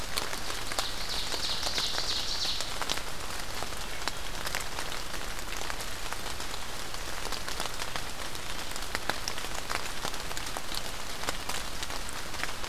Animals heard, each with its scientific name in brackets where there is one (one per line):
Ovenbird (Seiurus aurocapilla)